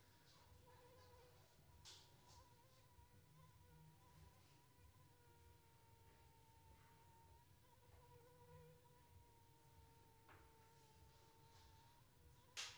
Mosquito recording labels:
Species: Anopheles arabiensis; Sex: female; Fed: unfed; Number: one; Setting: cup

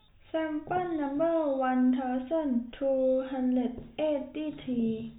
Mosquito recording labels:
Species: no mosquito; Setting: cup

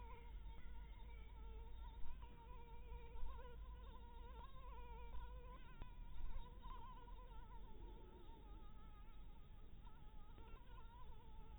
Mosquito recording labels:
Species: Anopheles harrisoni; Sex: female; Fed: blood-fed; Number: one; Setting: cup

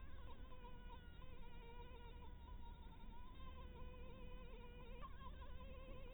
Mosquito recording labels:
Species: Anopheles dirus; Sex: female; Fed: blood-fed; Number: one; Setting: cup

